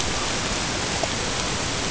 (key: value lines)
label: ambient
recorder: HydroMoth